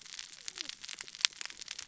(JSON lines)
{"label": "biophony, cascading saw", "recorder": "SoundTrap 600 or HydroMoth"}